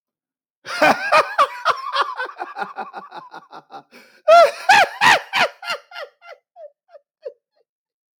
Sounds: Laughter